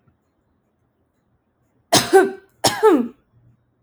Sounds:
Cough